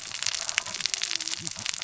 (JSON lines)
{"label": "biophony, cascading saw", "recorder": "SoundTrap 600 or HydroMoth"}